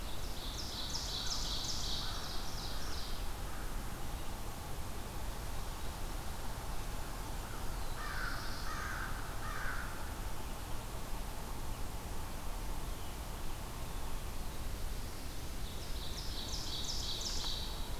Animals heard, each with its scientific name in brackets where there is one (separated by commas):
Black-throated Blue Warbler (Setophaga caerulescens), American Crow (Corvus brachyrhynchos), Ovenbird (Seiurus aurocapilla)